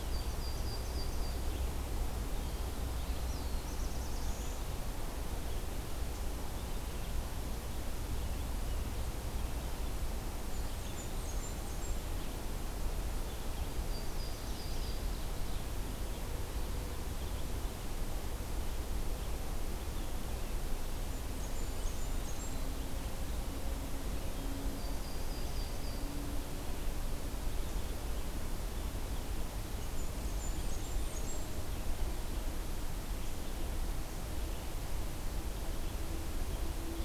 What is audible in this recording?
Yellow-rumped Warbler, Eastern Wood-Pewee, Black-throated Blue Warbler, Blackburnian Warbler, Ovenbird